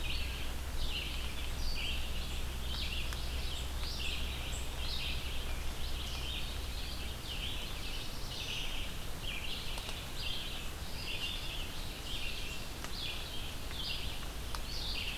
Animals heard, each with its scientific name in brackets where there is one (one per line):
Red-eyed Vireo (Vireo olivaceus)
Black-throated Blue Warbler (Setophaga caerulescens)